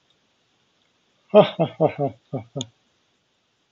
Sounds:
Laughter